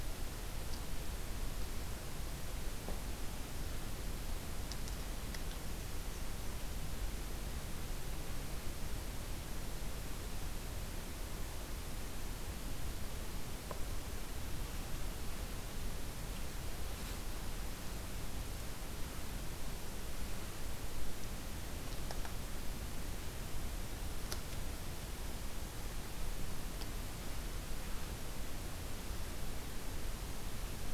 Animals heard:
forest ambience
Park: Acadia National Park